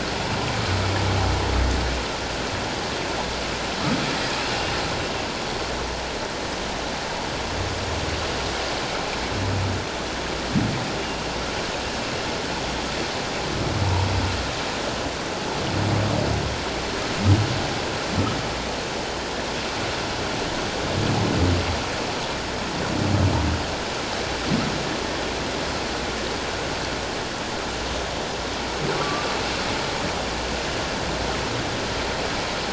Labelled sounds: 29.0	29.2	humpback whale, 1.1 to 1.2 kHz

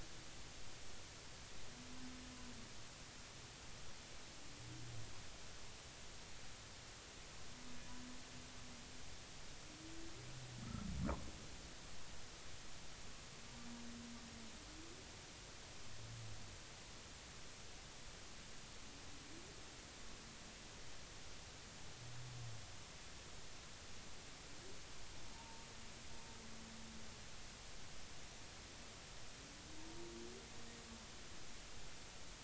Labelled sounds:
10.6	10.9	humpback whale, 1.2 to 1.4 kHz
25.3	25.7	humpback whale, 0.86 to 0.96 kHz

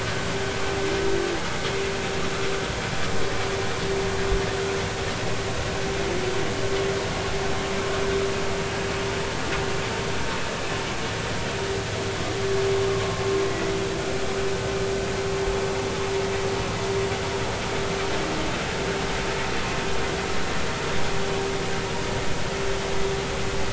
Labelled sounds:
12.9	13.7	vessel noise, 1.0 to 2.0 kHz

